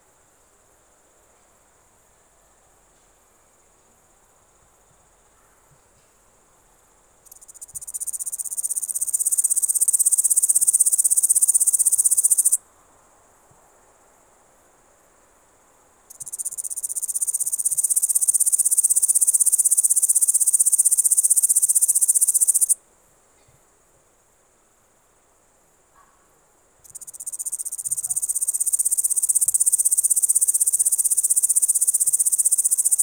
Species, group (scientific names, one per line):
Tettigonia cantans
Orthoptera